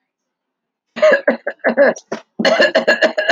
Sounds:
Cough